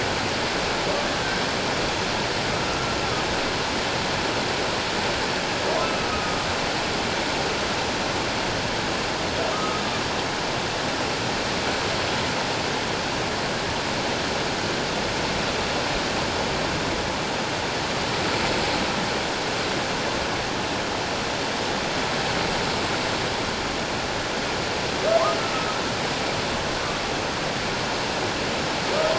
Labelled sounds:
6.1	6.4	humpback whale, 1.2 to 1.3 kHz
9.5	9.8	humpback whale, 1.2 to 1.3 kHz

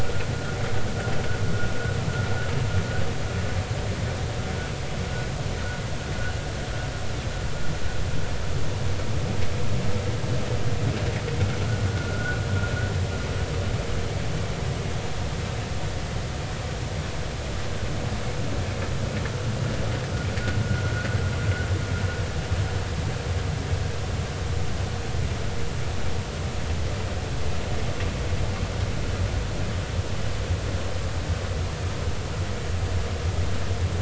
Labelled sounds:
11.9	12.4	vessel noise, 1.3 to 1.5 kHz
20.6	20.9	vessel noise, 1.3 to 1.5 kHz

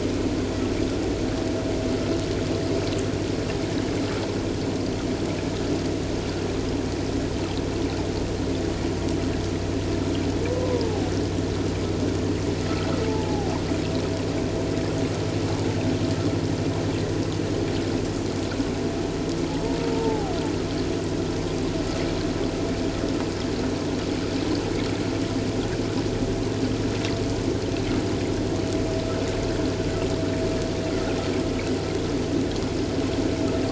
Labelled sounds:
10.6	11.1	humpback whale, 0.78 to 1.1 kHz
13.1	13.5	humpback whale, 0.78 to 0.97 kHz
19.9	20.3	humpback whale, 0.78 to 0.94 kHz

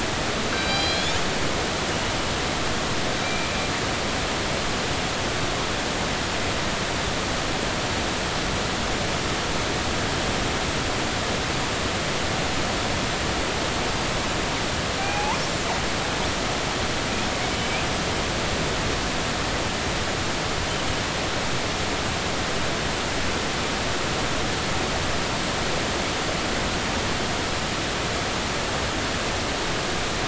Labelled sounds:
0.5	1.2	killer whale, northern resident, G clan, call N24ii, 1.5 to 5.0 kHz
3.2	3.5	killer whale, northern resident, G clan, call N24ii, 2.3 to 2.4 kHz
15.0	15.4	killer whale, northern resident, G clan, GI subclan, call N24i, 0.80 to 2.6 kHz
17.6	17.8	killer whale, northern resident, G clan, 2.2 to 2.6 kHz

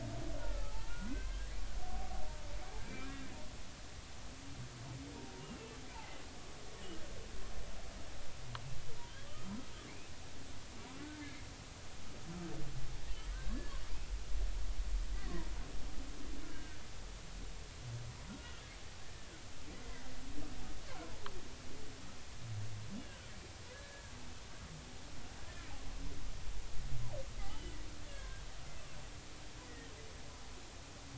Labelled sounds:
0.4	1.5	humpback whale, 0.80 to 2.2 kHz
2.8	3.3	humpback whale, 1.5 to 2.5 kHz
5.4	5.8	humpback whale, 2.6 to 2.9 kHz
11.0	11.2	humpback whale, 1.3 to 1.6 kHz
13.3	13.7	humpback whale, 1.5 to 1.8 kHz
16.5	16.8	humpback whale, 1.5 to 1.7 kHz
18.4	18.6	humpback whale, 1.3 to 1.5 kHz
23.0	24.1	humpback whale, 1.4 to 1.8 kHz
27.5	27.8	humpback whale, 2.9 to 3.1 kHz
28.1	28.4	humpback whale, 1.5 to 3.5 kHz
29.6	29.9	humpback whale, 1.8 to 2.0 kHz

